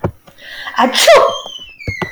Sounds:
Sneeze